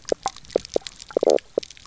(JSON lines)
{"label": "biophony, knock croak", "recorder": "SoundTrap 300"}